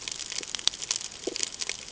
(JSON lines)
{"label": "ambient", "recorder": "HydroMoth"}